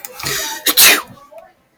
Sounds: Sneeze